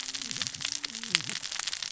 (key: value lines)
label: biophony, cascading saw
recorder: SoundTrap 600 or HydroMoth